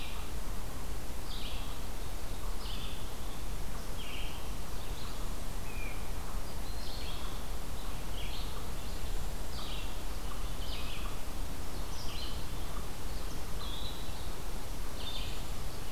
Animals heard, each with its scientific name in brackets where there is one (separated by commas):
Red-eyed Vireo (Vireo olivaceus), Eastern Chipmunk (Tamias striatus), Broad-winged Hawk (Buteo platypterus)